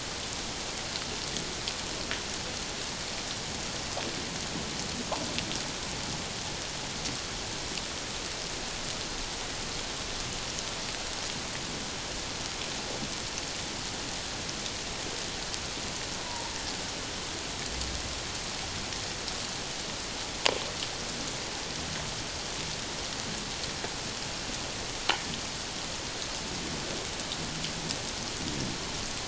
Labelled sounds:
16.2	16.5	killer whale, Bigg's (transient), 0.88 to 1.0 kHz

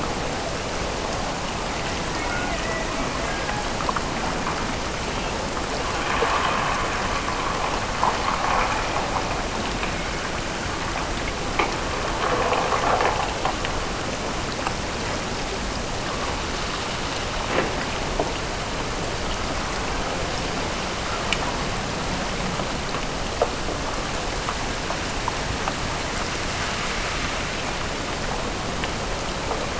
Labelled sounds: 2.1	3.7	killer whale, Bigg's (transient), Gulf of Alaska transient, 0.50 to 2.2 kHz

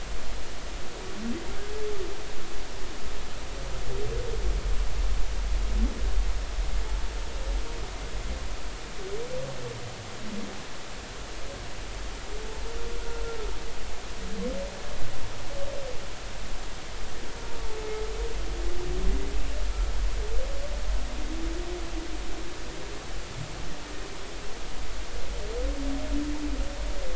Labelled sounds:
19.7	19.9	humpback whale, 1.3 to 1.4 kHz

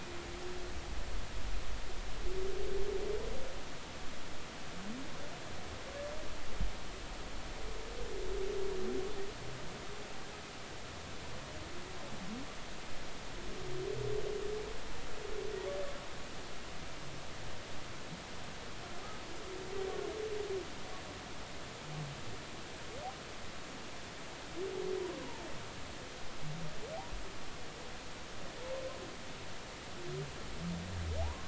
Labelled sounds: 25.2	25.5	humpback whale, 0.83 to 1.1 kHz
31.2	31.4	humpback whale, 0.80 to 1.2 kHz

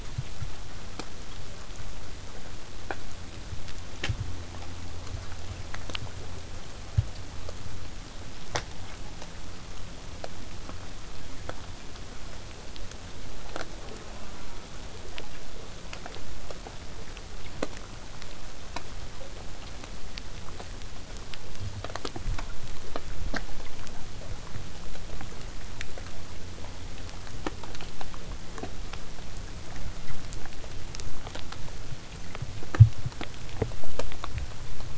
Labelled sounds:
13.8	14.7	killer whale, southern resident, J pod, call S04, 0.19 to 1.7 kHz

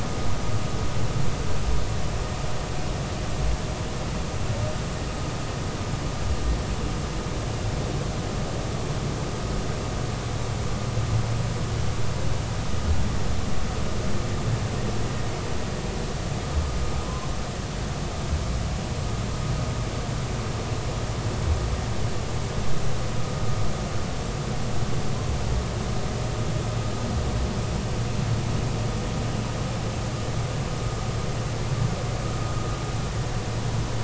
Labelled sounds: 17.0	17.3	humpback whale, 0.99 to 1.1 kHz

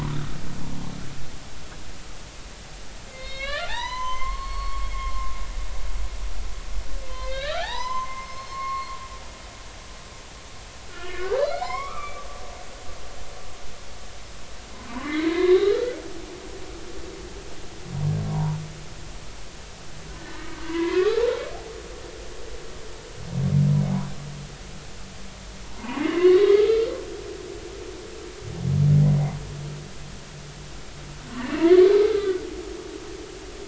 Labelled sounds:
3.1	5.3	humpback whale, 0.80 to 6.3 kHz
7.1	8.9	humpback whale, 0.80 to 5.4 kHz
10.9	12.2	humpback whale, 0.80 to 5.6 kHz
15.0	15.7	humpback whale, 1.6 to 4.0 kHz
18.3	18.6	humpback whale, 0.86 to 1.1 kHz
20.2	21.2	humpback whale, 0.93 to 2.3 kHz
25.8	26.9	humpback whale, 0.83 to 3.8 kHz
31.3	31.7	humpback whale, 2.6 to 2.9 kHz

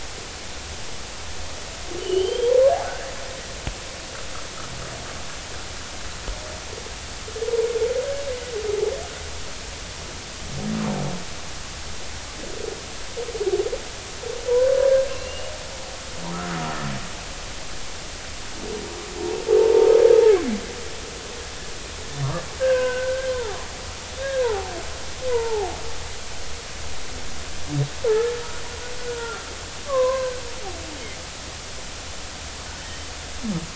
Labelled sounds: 2.0	2.6	killer whale, 2.8 to 3.3 kHz
2.8	3.1	humpback whale, 1.3 to 1.7 kHz
16.5	16.7	humpback whale, 1.2 to 1.5 kHz
19.6	19.9	humpback whale, 0.83 to 1.1 kHz
22.6	23.6	humpback whale, 0.80 to 1.7 kHz
24.2	24.7	humpback whale, 0.80 to 1.7 kHz
25.3	25.7	humpback whale, 0.80 to 1.0 kHz
28.1	28.3	humpback whale, 1.2 to 1.8 kHz
29.1	29.4	humpback whale, 1.3 to 1.5 kHz
29.9	30.4	humpback whale, 0.96 to 1.6 kHz

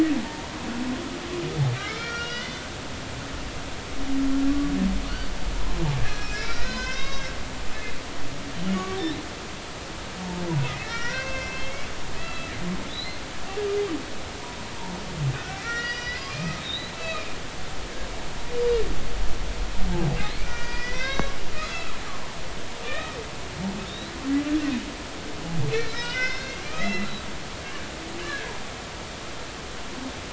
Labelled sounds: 0.2	0.6	humpback whale, 0.80 to 1.1 kHz
1.8	2.6	humpback whale, 1.3 to 5.8 kHz
5.5	7.3	humpback whale, 0.93 to 6.3 kHz
8.5	9.0	humpback whale, 1.1 to 3.1 kHz
10.6	12.5	humpback whale, 1.0 to 5.9 kHz
12.9	13.2	humpback whale, 3.7 to 4.2 kHz
15.3	17.3	humpback whale, 1.2 to 5.9 kHz
20.4	21.4	humpback whale, 1.0 to 6.1 kHz
21.6	21.9	humpback whale, 3.9 to 4.1 kHz
22.8	24.1	humpback whale, 1.1 to 4.1 kHz
25.7	27.1	humpback whale, 1.4 to 5.4 kHz
28.2	28.5	humpback whale, 1.5 to 1.8 kHz

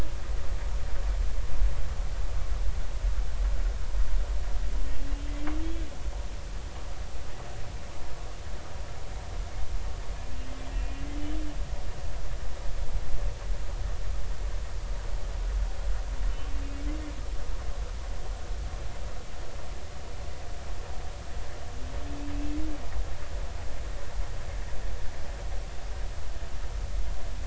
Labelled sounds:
22.3	22.6	humpback whale, 2.5 to 2.7 kHz

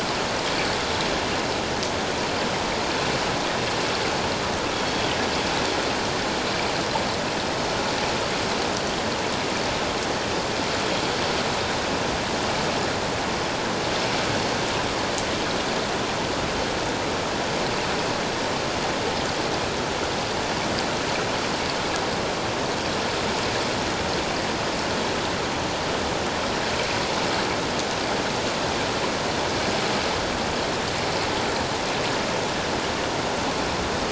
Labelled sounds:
4.7	5.1	Pacific white-sided dolphin, 3.2 to 3.4 kHz

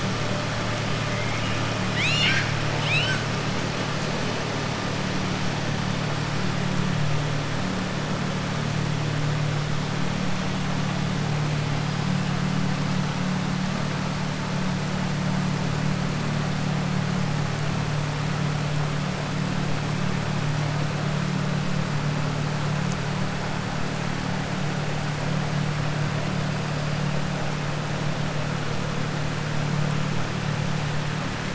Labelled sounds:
1.8	3.2	killer whale, southern resident, 1.4 to 7.9 kHz

